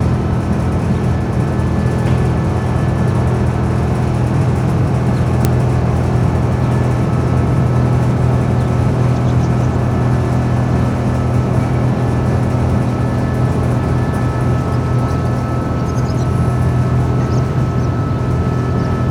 Is this an animal?
no